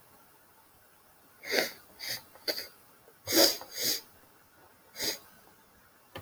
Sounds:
Sniff